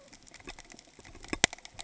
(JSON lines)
{"label": "ambient", "recorder": "HydroMoth"}